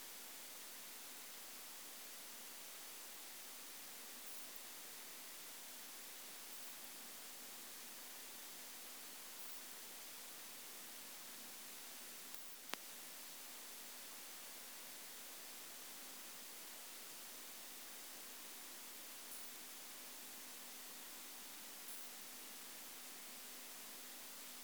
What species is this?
Isophya modestior